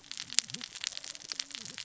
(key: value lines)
label: biophony, cascading saw
recorder: SoundTrap 600 or HydroMoth